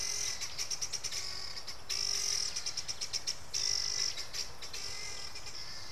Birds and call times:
Helmeted Guineafowl (Numida meleagris): 0:01.0, 0:03.9

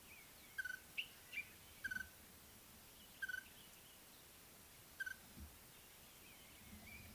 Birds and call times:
Common Bulbul (Pycnonotus barbatus): 0:01.0
Red-fronted Tinkerbird (Pogoniulus pusillus): 0:03.3

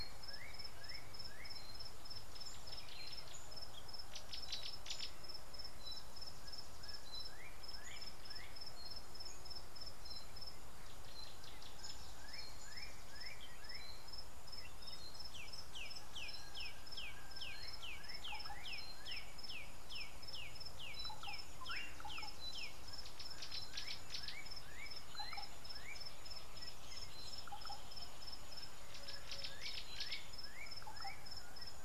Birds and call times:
Gray-backed Camaroptera (Camaroptera brevicaudata): 0:04.7, 0:23.9
Black-backed Puffback (Dryoscopus cubla): 0:19.2
Slate-colored Boubou (Laniarius funebris): 0:21.3

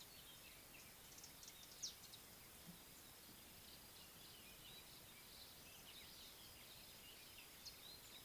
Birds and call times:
Mariqua Sunbird (Cinnyris mariquensis): 0:01.9

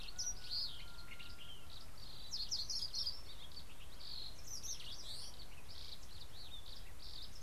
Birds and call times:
Brimstone Canary (Crithagra sulphurata): 0:02.5

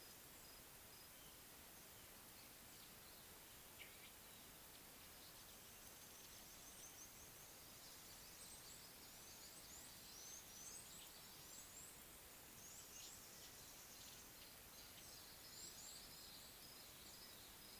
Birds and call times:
Red-cheeked Cordonbleu (Uraeginthus bengalus): 0:09.8

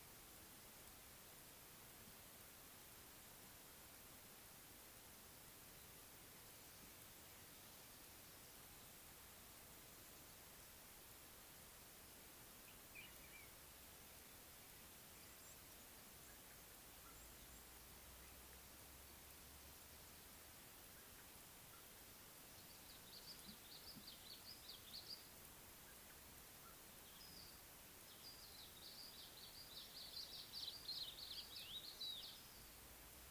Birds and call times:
Red-faced Crombec (Sylvietta whytii): 0:30.4

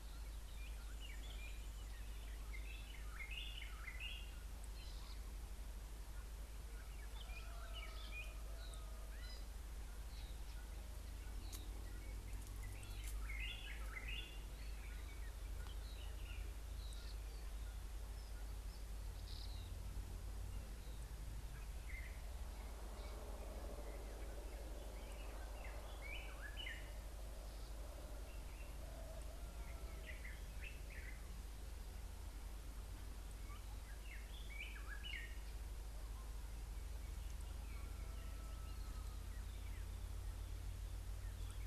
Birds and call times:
White-browed Robin-Chat (Cossypha heuglini): 0:03.4, 0:13.6, 0:26.2, 0:34.7
Gray-backed Camaroptera (Camaroptera brevicaudata): 0:09.3
Pale White-eye (Zosterops flavilateralis): 0:11.5

